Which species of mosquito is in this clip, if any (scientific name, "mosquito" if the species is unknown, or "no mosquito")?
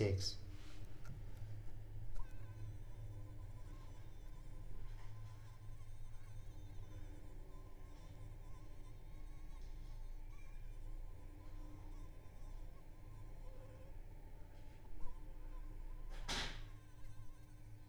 Anopheles arabiensis